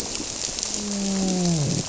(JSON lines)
{"label": "biophony, grouper", "recorder": "SoundTrap 300"}